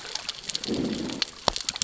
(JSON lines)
{"label": "biophony, growl", "recorder": "SoundTrap 600 or HydroMoth"}